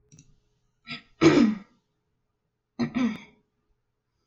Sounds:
Throat clearing